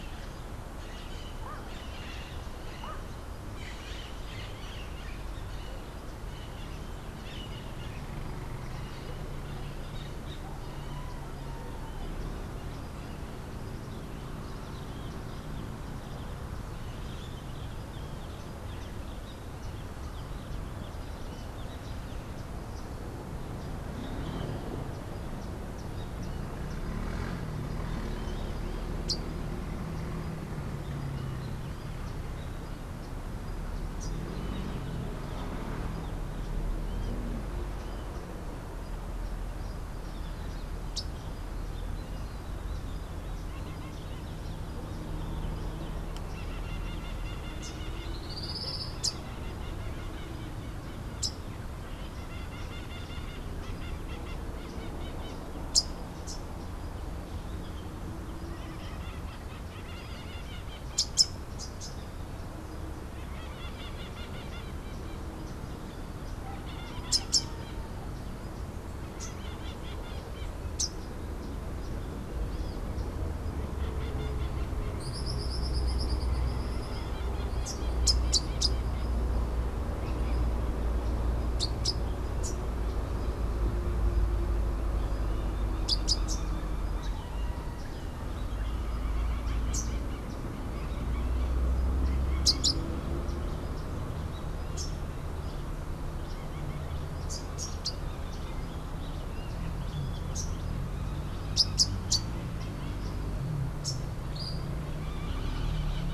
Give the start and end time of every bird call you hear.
0.0s-10.4s: Crimson-fronted Parakeet (Psittacara finschi)
28.9s-29.4s: Rufous-capped Warbler (Basileuterus rufifrons)
40.8s-41.2s: Rufous-capped Warbler (Basileuterus rufifrons)
46.5s-55.7s: Crimson-fronted Parakeet (Psittacara finschi)
48.0s-48.9s: Tropical Kingbird (Tyrannus melancholicus)
48.9s-56.5s: Rufous-capped Warbler (Basileuterus rufifrons)
58.7s-71.1s: Crimson-fronted Parakeet (Psittacara finschi)
60.8s-71.2s: Rufous-capped Warbler (Basileuterus rufifrons)
74.8s-77.3s: Tropical Kingbird (Tyrannus melancholicus)
77.5s-106.1s: Rufous-capped Warbler (Basileuterus rufifrons)
104.3s-104.7s: Tropical Kingbird (Tyrannus melancholicus)

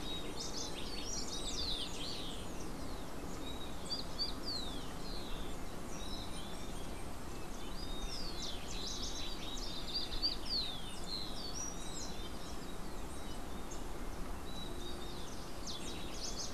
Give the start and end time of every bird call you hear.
0.0s-2.5s: House Wren (Troglodytes aedon)
3.4s-16.5s: Golden-faced Tyrannulet (Zimmerius chrysops)
3.8s-12.3s: Rufous-collared Sparrow (Zonotrichia capensis)

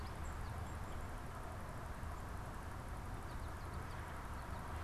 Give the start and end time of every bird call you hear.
0.0s-4.8s: American Goldfinch (Spinus tristis)
0.1s-0.8s: Tufted Titmouse (Baeolophus bicolor)

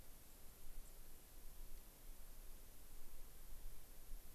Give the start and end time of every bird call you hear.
0.8s-0.9s: Dark-eyed Junco (Junco hyemalis)
1.7s-1.9s: Dark-eyed Junco (Junco hyemalis)

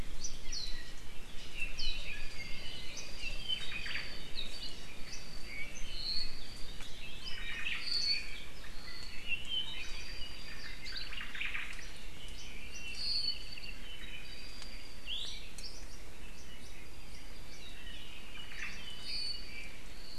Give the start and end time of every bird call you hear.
0.2s-0.4s: Hawaii Creeper (Loxops mana)
0.5s-1.0s: Apapane (Himatione sanguinea)
1.5s-4.4s: Apapane (Himatione sanguinea)
2.9s-3.2s: Hawaii Creeper (Loxops mana)
3.5s-4.2s: Omao (Myadestes obscurus)
5.4s-11.2s: Apapane (Himatione sanguinea)
7.3s-8.0s: Omao (Myadestes obscurus)
10.9s-11.9s: Omao (Myadestes obscurus)
12.4s-15.2s: Apapane (Himatione sanguinea)
15.1s-15.5s: Iiwi (Drepanis coccinea)
18.3s-18.9s: Omao (Myadestes obscurus)
18.8s-19.9s: Apapane (Himatione sanguinea)

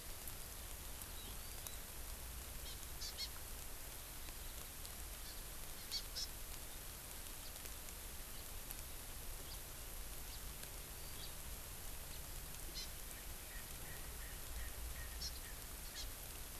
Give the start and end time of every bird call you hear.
2.7s-3.3s: Hawaii Amakihi (Chlorodrepanis virens)
5.2s-5.4s: Hawaii Amakihi (Chlorodrepanis virens)
5.9s-6.3s: Hawaii Amakihi (Chlorodrepanis virens)
9.5s-9.6s: House Finch (Haemorhous mexicanus)
10.3s-10.4s: House Finch (Haemorhous mexicanus)
11.2s-11.3s: House Finch (Haemorhous mexicanus)
12.8s-12.9s: Hawaii Amakihi (Chlorodrepanis virens)
13.1s-15.5s: Erckel's Francolin (Pternistis erckelii)
15.2s-15.3s: Hawaii Amakihi (Chlorodrepanis virens)
16.0s-16.1s: Hawaii Amakihi (Chlorodrepanis virens)

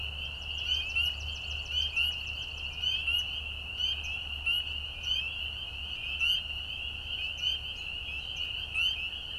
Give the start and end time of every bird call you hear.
0.1s-3.3s: Swamp Sparrow (Melospiza georgiana)
4.0s-4.2s: Swamp Sparrow (Melospiza georgiana)
4.9s-5.1s: Swamp Sparrow (Melospiza georgiana)
6.1s-6.3s: Swamp Sparrow (Melospiza georgiana)
7.3s-7.5s: Swamp Sparrow (Melospiza georgiana)
7.7s-7.9s: American Robin (Turdus migratorius)
8.3s-8.5s: Swamp Sparrow (Melospiza georgiana)

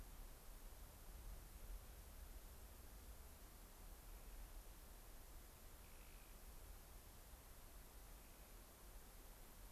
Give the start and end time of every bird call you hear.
5.8s-6.5s: Clark's Nutcracker (Nucifraga columbiana)
8.0s-8.6s: Clark's Nutcracker (Nucifraga columbiana)

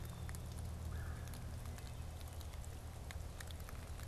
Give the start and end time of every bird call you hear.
0.7s-1.3s: Red-bellied Woodpecker (Melanerpes carolinus)

